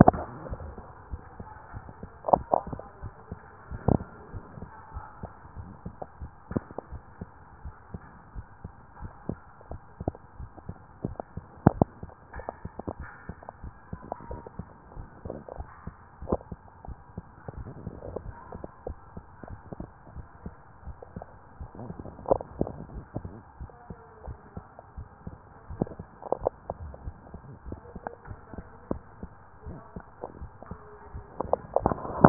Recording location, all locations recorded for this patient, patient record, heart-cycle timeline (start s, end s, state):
mitral valve (MV)
aortic valve (AV)+pulmonary valve (PV)+tricuspid valve (TV)+mitral valve (MV)
#Age: Child
#Sex: Male
#Height: 127.0 cm
#Weight: 35.8 kg
#Pregnancy status: False
#Murmur: Absent
#Murmur locations: nan
#Most audible location: nan
#Systolic murmur timing: nan
#Systolic murmur shape: nan
#Systolic murmur grading: nan
#Systolic murmur pitch: nan
#Systolic murmur quality: nan
#Diastolic murmur timing: nan
#Diastolic murmur shape: nan
#Diastolic murmur grading: nan
#Diastolic murmur pitch: nan
#Diastolic murmur quality: nan
#Outcome: Normal
#Campaign: 2014 screening campaign
0.00	6.83	unannotated
6.83	6.92	diastole
6.92	7.02	S1
7.02	7.20	systole
7.20	7.28	S2
7.28	7.64	diastole
7.64	7.74	S1
7.74	7.92	systole
7.92	8.02	S2
8.02	8.34	diastole
8.34	8.46	S1
8.46	8.62	systole
8.62	8.72	S2
8.72	9.00	diastole
9.00	9.12	S1
9.12	9.28	systole
9.28	9.38	S2
9.38	9.70	diastole
9.70	9.82	S1
9.82	10.02	systole
10.02	10.14	S2
10.14	10.40	diastole
10.40	10.50	S1
10.50	10.66	systole
10.66	10.76	S2
10.76	11.04	diastole
11.04	11.16	S1
11.16	11.36	systole
11.36	11.44	S2
11.44	11.72	diastole
11.72	11.87	S1
11.87	12.02	systole
12.02	12.12	S2
12.12	12.34	diastole
12.34	12.46	S1
12.46	12.62	systole
12.62	12.72	S2
12.72	12.98	diastole
12.98	13.08	S1
13.08	13.28	systole
13.28	13.36	S2
13.36	13.62	diastole
13.62	13.74	S1
13.74	13.90	systole
13.90	14.00	S2
14.00	14.30	diastole
14.30	14.42	S1
14.42	14.58	systole
14.58	14.68	S2
14.68	14.96	diastole
14.96	15.08	S1
15.08	15.26	systole
15.26	15.36	S2
15.36	15.58	diastole
15.58	15.68	S1
15.68	15.86	systole
15.86	15.94	S2
15.94	16.24	diastole
16.24	16.40	S1
16.40	16.50	systole
16.50	16.60	S2
16.60	16.86	diastole
16.86	16.98	S1
16.98	17.16	systole
17.16	17.24	S2
17.24	17.56	diastole
17.56	17.70	S1
17.70	17.84	systole
17.84	17.94	S2
17.94	18.24	diastole
18.24	18.36	S1
18.36	18.52	systole
18.52	18.62	S2
18.62	18.86	diastole
18.86	18.98	S1
18.98	19.14	systole
19.14	19.24	S2
19.24	19.50	diastole
19.50	19.60	S1
19.60	19.78	systole
19.78	19.88	S2
19.88	20.14	diastole
20.14	20.26	S1
20.26	20.44	systole
20.44	20.54	S2
20.54	20.86	diastole
20.86	20.96	S1
20.96	21.16	systole
21.16	21.26	S2
21.26	21.60	diastole
21.60	21.70	S1
21.70	21.82	systole
21.82	21.94	S2
21.94	22.30	diastole
22.30	22.42	S1
22.42	22.58	systole
22.58	22.72	S2
22.72	22.94	diastole
22.94	23.04	S1
23.04	23.20	systole
23.20	23.32	S2
23.32	23.60	diastole
23.60	23.70	S1
23.70	23.88	systole
23.88	23.96	S2
23.96	24.26	diastole
24.26	24.38	S1
24.38	24.56	systole
24.56	24.64	S2
24.64	24.96	diastole
24.96	25.08	S1
25.08	25.26	systole
25.26	25.36	S2
25.36	25.72	diastole
25.72	32.29	unannotated